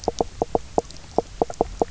{"label": "biophony, knock croak", "recorder": "SoundTrap 300"}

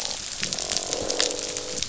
{"label": "biophony, croak", "recorder": "SoundTrap 500"}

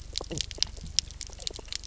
{"label": "biophony, knock croak", "recorder": "SoundTrap 300"}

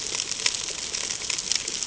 {"label": "ambient", "recorder": "HydroMoth"}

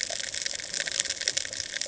{"label": "ambient", "recorder": "HydroMoth"}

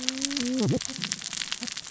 {"label": "biophony, cascading saw", "recorder": "SoundTrap 600 or HydroMoth"}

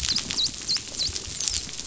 {"label": "biophony, dolphin", "recorder": "SoundTrap 500"}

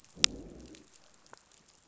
{"label": "biophony, growl", "recorder": "SoundTrap 500"}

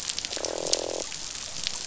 {"label": "biophony, croak", "recorder": "SoundTrap 500"}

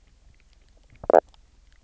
{"label": "biophony", "recorder": "SoundTrap 300"}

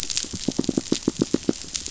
{"label": "biophony, knock", "recorder": "SoundTrap 500"}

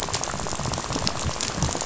{"label": "biophony, rattle", "recorder": "SoundTrap 500"}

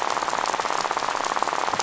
{"label": "biophony, rattle", "recorder": "SoundTrap 500"}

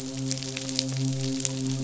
{"label": "biophony, midshipman", "recorder": "SoundTrap 500"}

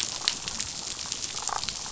{"label": "biophony, damselfish", "recorder": "SoundTrap 500"}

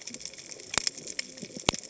{"label": "biophony, cascading saw", "recorder": "HydroMoth"}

